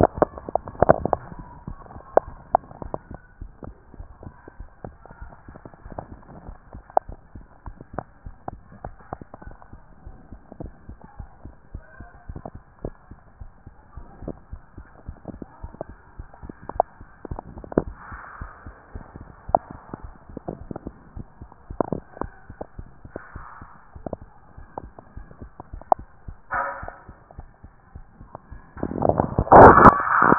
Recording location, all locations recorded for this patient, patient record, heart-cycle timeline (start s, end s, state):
mitral valve (MV)
aortic valve (AV)+pulmonary valve (PV)+tricuspid valve (TV)+mitral valve (MV)
#Age: Child
#Sex: Male
#Height: 161.0 cm
#Weight: 61.3 kg
#Pregnancy status: False
#Murmur: Absent
#Murmur locations: nan
#Most audible location: nan
#Systolic murmur timing: nan
#Systolic murmur shape: nan
#Systolic murmur grading: nan
#Systolic murmur pitch: nan
#Systolic murmur quality: nan
#Diastolic murmur timing: nan
#Diastolic murmur shape: nan
#Diastolic murmur grading: nan
#Diastolic murmur pitch: nan
#Diastolic murmur quality: nan
#Outcome: Abnormal
#Campaign: 2014 screening campaign
0.00	3.26	unannotated
3.26	3.40	diastole
3.40	3.52	S1
3.52	3.66	systole
3.66	3.74	S2
3.74	3.98	diastole
3.98	4.08	S1
4.08	4.24	systole
4.24	4.34	S2
4.34	4.58	diastole
4.58	4.68	S1
4.68	4.84	systole
4.84	4.96	S2
4.96	5.20	diastole
5.20	5.32	S1
5.32	5.48	systole
5.48	5.59	S2
5.59	5.85	diastole
5.85	5.98	S1
5.98	6.12	systole
6.12	6.22	S2
6.22	6.46	diastole
6.46	6.58	S1
6.58	6.74	systole
6.74	6.84	S2
6.84	7.08	diastole
7.08	7.18	S1
7.18	7.36	systole
7.36	7.44	S2
7.44	7.66	diastole
7.66	7.77	S1
7.77	7.94	systole
7.94	8.04	S2
8.04	8.24	diastole
8.24	8.36	S1
8.36	8.50	systole
8.50	8.60	S2
8.60	8.84	diastole
8.84	8.94	S1
8.94	9.12	systole
9.12	9.22	S2
9.22	9.44	diastole
9.44	9.56	S1
9.56	9.72	systole
9.72	9.82	S2
9.82	10.04	diastole
10.04	10.16	S1
10.16	10.30	systole
10.30	10.40	S2
10.40	10.60	diastole
10.60	10.72	S1
10.72	10.88	systole
10.88	10.98	S2
10.98	11.18	diastole
11.18	11.30	S1
11.30	11.44	systole
11.44	11.54	S2
11.54	11.72	diastole
11.72	11.84	S1
11.84	12.00	systole
12.00	12.10	S2
12.10	12.28	diastole
12.28	30.38	unannotated